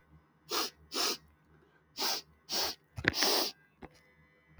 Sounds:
Sniff